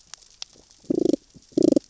{"label": "biophony, damselfish", "recorder": "SoundTrap 600 or HydroMoth"}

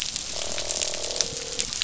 {"label": "biophony, croak", "recorder": "SoundTrap 500"}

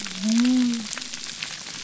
{"label": "biophony", "recorder": "SoundTrap 300"}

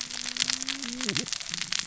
{"label": "biophony, cascading saw", "recorder": "SoundTrap 600 or HydroMoth"}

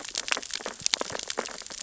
{"label": "biophony, sea urchins (Echinidae)", "recorder": "SoundTrap 600 or HydroMoth"}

